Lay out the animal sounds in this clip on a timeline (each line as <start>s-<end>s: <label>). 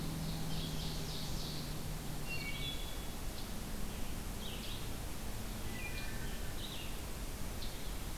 0.0s-1.8s: Ovenbird (Seiurus aurocapilla)
0.0s-8.2s: Red-eyed Vireo (Vireo olivaceus)
2.2s-3.2s: Wood Thrush (Hylocichla mustelina)
5.6s-6.6s: Wood Thrush (Hylocichla mustelina)